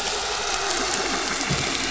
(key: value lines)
label: anthrophony, boat engine
recorder: SoundTrap 500